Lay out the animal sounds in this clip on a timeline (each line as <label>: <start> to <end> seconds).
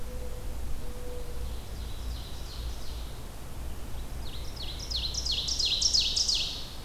Mourning Dove (Zenaida macroura): 0.0 to 1.6 seconds
Ovenbird (Seiurus aurocapilla): 1.1 to 3.3 seconds
Ovenbird (Seiurus aurocapilla): 4.1 to 6.8 seconds